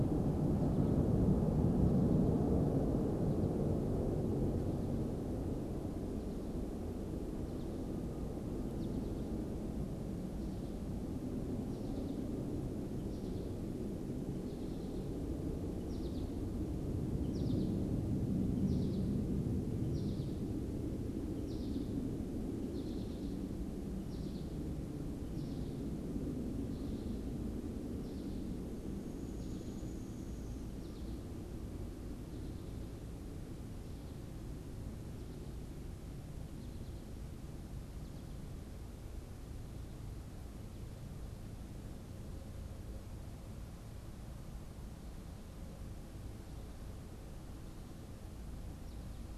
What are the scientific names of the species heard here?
Spinus tristis, Dryobates pubescens